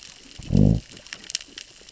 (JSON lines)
{"label": "biophony, growl", "recorder": "SoundTrap 600 or HydroMoth"}